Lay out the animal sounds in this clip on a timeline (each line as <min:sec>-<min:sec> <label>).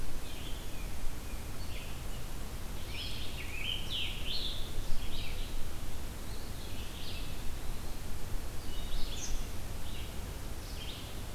0:00.0-0:11.3 Blue-headed Vireo (Vireo solitarius)
0:00.1-0:01.5 Tufted Titmouse (Baeolophus bicolor)
0:02.7-0:05.6 Scarlet Tanager (Piranga olivacea)
0:06.3-0:08.0 Eastern Wood-Pewee (Contopus virens)